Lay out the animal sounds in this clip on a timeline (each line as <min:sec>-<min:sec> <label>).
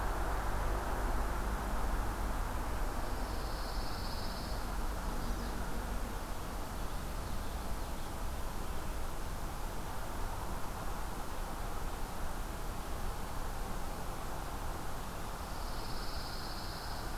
0:03.0-0:04.7 Pine Warbler (Setophaga pinus)
0:04.7-0:05.6 Chestnut-sided Warbler (Setophaga pensylvanica)
0:15.4-0:17.2 Pine Warbler (Setophaga pinus)